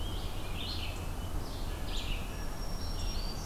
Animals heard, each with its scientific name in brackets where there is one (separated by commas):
Red-eyed Vireo (Vireo olivaceus), Black-throated Green Warbler (Setophaga virens)